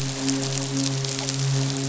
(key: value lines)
label: biophony, midshipman
recorder: SoundTrap 500